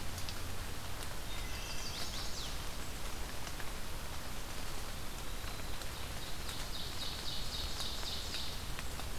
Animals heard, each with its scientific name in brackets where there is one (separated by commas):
Wood Thrush (Hylocichla mustelina), Eastern Wood-Pewee (Contopus virens), Ovenbird (Seiurus aurocapilla), Chestnut-sided Warbler (Setophaga pensylvanica)